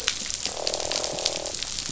{"label": "biophony, croak", "recorder": "SoundTrap 500"}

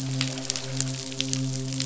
{"label": "biophony, midshipman", "recorder": "SoundTrap 500"}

